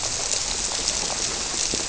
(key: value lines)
label: biophony
recorder: SoundTrap 300